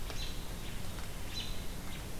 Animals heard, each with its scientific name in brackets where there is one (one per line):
American Robin (Turdus migratorius)